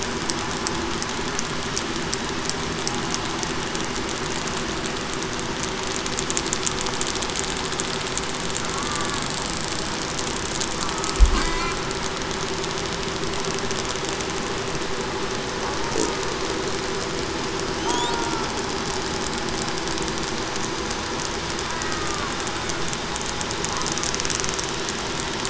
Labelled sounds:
17.8	18.3	killer whale, southern resident, 0.87 to 0.98 kHz
21.8	22.3	killer whale, southern resident, 1.0 to 1.3 kHz

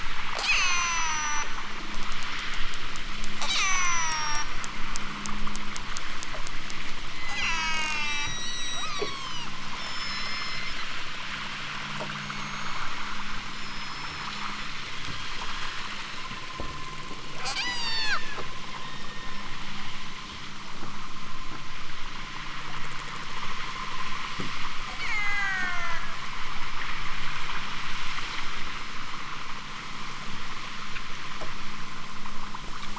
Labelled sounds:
0.4	1.5	killer whale, southern Alaska resident, 0.60 to 8.0 kHz
3.4	4.5	killer whale, southern Alaska resident, 0.41 to 8.0 kHz
7.3	10.8	killer whale, southern Alaska resident, 0.60 to 8.0 kHz
12.2	13.1	killer whale, southern Alaska resident, 4.1 to 7.2 kHz
13.5	16.4	killer whale, southern Alaska resident, 3.9 to 7.5 kHz
17.4	18.3	killer whale, southern Alaska resident, 0.46 to 8.0 kHz
18.7	19.5	killer whale, southern Alaska resident, 1.6 to 6.0 kHz
24.9	26.1	killer whale, southern Alaska resident, 0.41 to 8.0 kHz

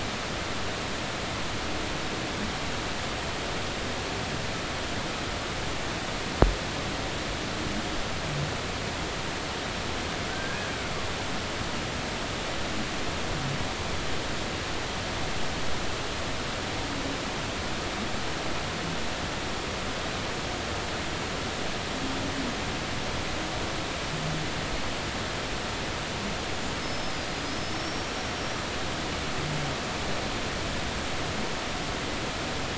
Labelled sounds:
10.3	10.7	killer whale, Bigg's (transient), 1.4 to 1.7 kHz
26.8	28.6	killer whale, Bigg's (transient), 4.7 to 5.7 kHz

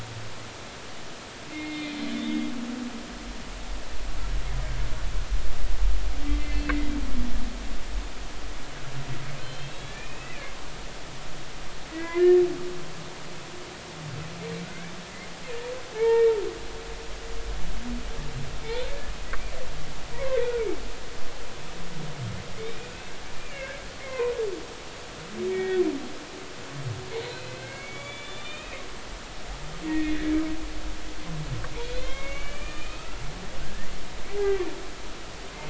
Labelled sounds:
1.5	2.5	humpback whale, 2.0 to 4.3 kHz
6.2	6.7	humpback whale, 2.0 to 2.7 kHz
9.4	10.5	humpback whale, 2.1 to 4.3 kHz
11.9	12.2	humpback whale, 1.9 to 2.1 kHz
15.9	16.3	humpback whale, 0.83 to 1.9 kHz
20.3	20.7	humpback whale, 1.4 to 2.5 kHz
22.6	24.3	humpback whale, 0.90 to 2.7 kHz
25.5	25.8	humpback whale, 1.8 to 3.5 kHz
27.2	28.8	humpback whale, 1.5 to 7.1 kHz
29.9	30.1	humpback whale, 1.8 to 2.0 kHz
31.9	33.2	humpback whale, 0.99 to 3.9 kHz
33.6	33.9	humpback whale, 1.4 to 1.9 kHz
34.3	34.6	humpback whale, 0.80 to 2.0 kHz

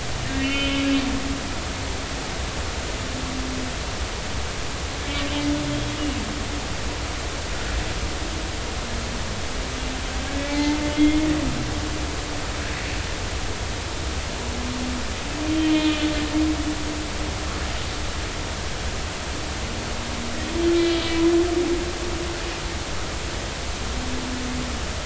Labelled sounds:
0.4	0.8	humpback whale, 2.1 to 3.1 kHz
5.0	6.0	humpback whale, 2.2 to 3.3 kHz
10.5	11.3	humpback whale, 0.80 to 2.2 kHz
15.7	16.0	humpback whale, 2.4 to 2.5 kHz

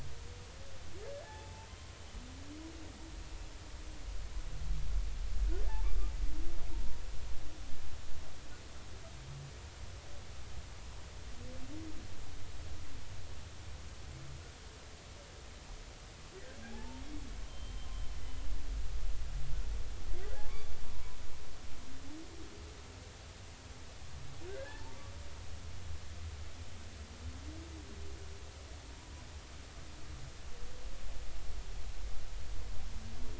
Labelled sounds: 1.2	1.7	humpback whale, 0.80 to 0.93 kHz
6.7	7.0	humpback whale, 0.90 to 0.99 kHz
16.7	17.0	humpback whale, 0.80 to 0.96 kHz
17.5	18.2	humpback whale, 3.0 to 3.2 kHz
20.8	21.2	humpback whale, 0.93 to 1.1 kHz
24.5	25.0	humpback whale, 0.80 to 1.8 kHz

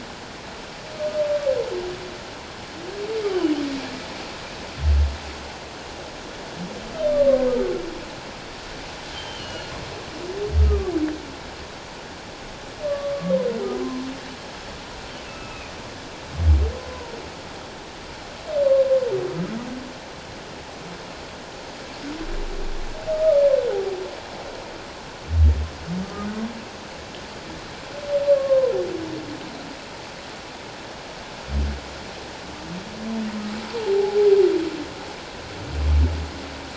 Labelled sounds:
3.3	3.6	humpback whale, 2.8 to 3.2 kHz
7.0	7.4	humpback whale, 1.0 to 3.6 kHz
9.1	9.7	humpback whale, 2.8 to 3.2 kHz
10.6	10.9	humpback whale, 1.1 to 1.3 kHz
13.7	14.0	humpback whale, 0.97 to 1.1 kHz
15.3	15.7	humpback whale, 1.2 to 2.7 kHz
26.0	26.3	humpback whale, 1.2 to 1.3 kHz
28.3	28.7	humpback whale, 0.97 to 1.2 kHz

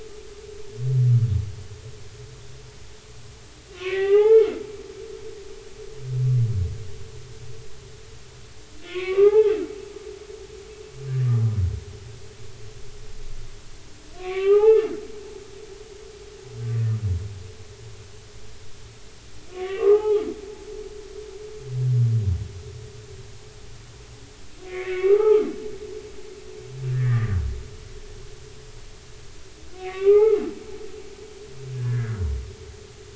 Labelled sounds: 3.7	4.6	humpback whale, 0.80 to 3.6 kHz
8.8	9.5	humpback whale, 0.80 to 2.8 kHz
14.2	14.9	humpback whale, 0.80 to 3.0 kHz
19.5	20.3	humpback whale, 0.80 to 2.4 kHz
24.6	25.5	humpback whale, 0.80 to 2.8 kHz
26.9	27.4	humpback whale, 1.1 to 2.0 kHz
29.8	30.4	humpback whale, 0.80 to 2.6 kHz
31.8	33.1	humpback whale, 1.2 to 2.1 kHz

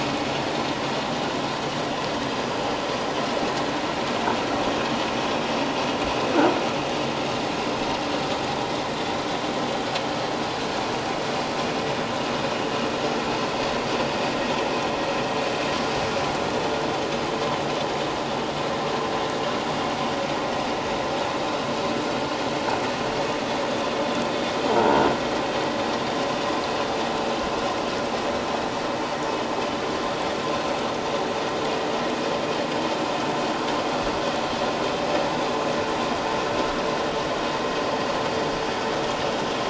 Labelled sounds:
24.7	25.0	croaking sound likely from a nearby submerged object, 0.84 to 1.0 kHz

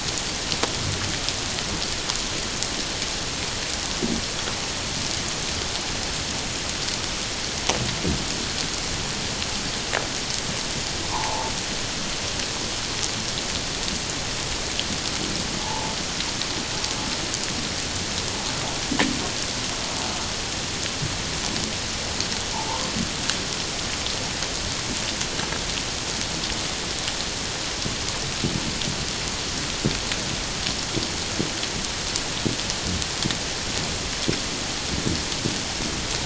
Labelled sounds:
11.1	11.5	humpback whale, 0.81 to 1.1 kHz
15.6	16.0	humpback whale, 0.81 to 1.0 kHz
22.5	22.9	humpback whale, 0.81 to 1.1 kHz

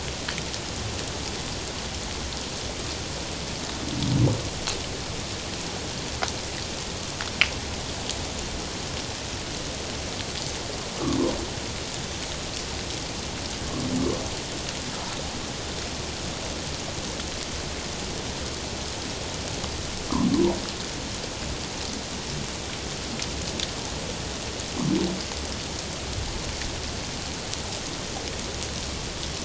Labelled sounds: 20.3	20.6	humpback whale, 0.84 to 1.1 kHz

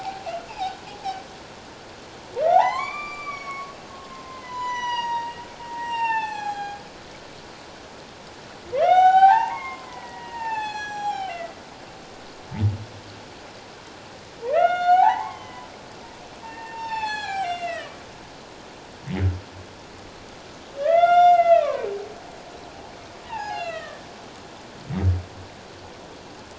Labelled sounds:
2.5	5.4	humpback whale, 0.78 to 8.0 kHz
5.7	6.8	humpback whale, 0.78 to 7.8 kHz
8.7	11.6	humpback whale, 0.78 to 7.9 kHz
14.5	15.7	humpback whale, 0.78 to 7.3 kHz
16.4	18.0	humpback whale, 0.78 to 7.8 kHz
20.8	21.9	humpback whale, 0.78 to 7.2 kHz
23.2	24.0	humpback whale, 0.78 to 5.9 kHz

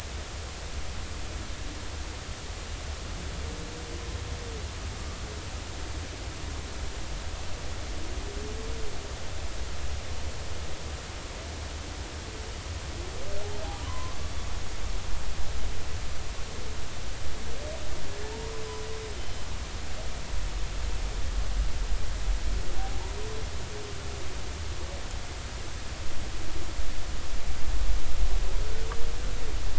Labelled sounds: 13.7	14.2	humpback whale, 0.93 to 1.2 kHz
19.1	19.5	humpback whale, 3.0 to 3.1 kHz

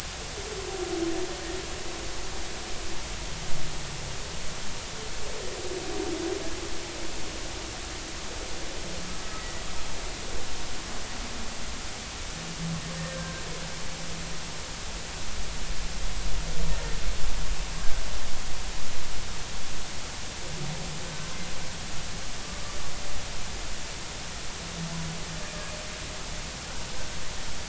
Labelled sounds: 13.1	13.4	humpback whale, 1.5 to 1.6 kHz

